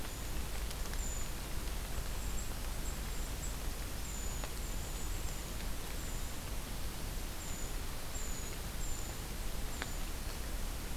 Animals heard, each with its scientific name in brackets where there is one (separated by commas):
Golden-crowned Kinglet (Regulus satrapa), Brown Creeper (Certhia americana)